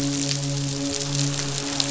{"label": "biophony, midshipman", "recorder": "SoundTrap 500"}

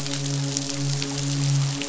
{"label": "biophony, midshipman", "recorder": "SoundTrap 500"}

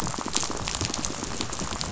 {"label": "biophony, rattle", "recorder": "SoundTrap 500"}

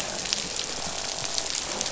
{"label": "biophony, croak", "recorder": "SoundTrap 500"}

